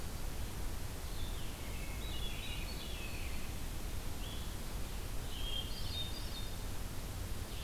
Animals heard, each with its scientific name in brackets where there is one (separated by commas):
Hermit Thrush (Catharus guttatus), American Robin (Turdus migratorius), Blue-headed Vireo (Vireo solitarius)